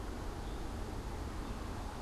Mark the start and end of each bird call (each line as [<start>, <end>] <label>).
[0.00, 2.02] Gray Catbird (Dumetella carolinensis)